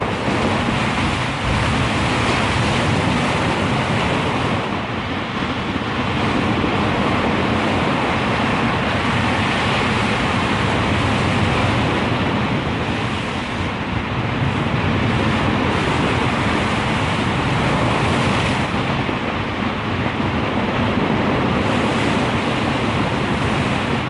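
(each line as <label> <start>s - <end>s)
Big ocean waves crash repeatedly with a thunderous, resonant quality, creating a dynamic and expansive atmosphere. 0.0s - 24.1s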